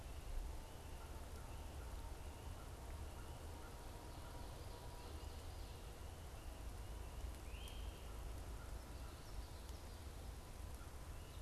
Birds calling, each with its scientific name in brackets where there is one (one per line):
Great Crested Flycatcher (Myiarchus crinitus)